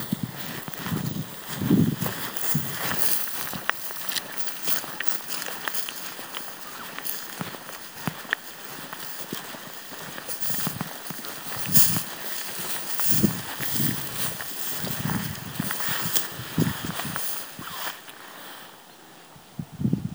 Is this outdoors?
yes